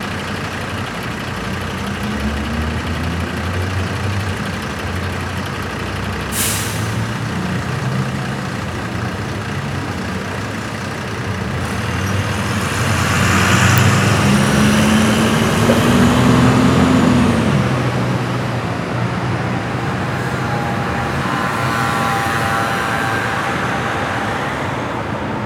Can people be heard speaking ?
no